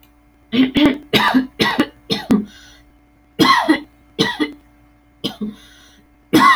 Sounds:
Cough